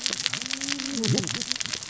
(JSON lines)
{"label": "biophony, cascading saw", "recorder": "SoundTrap 600 or HydroMoth"}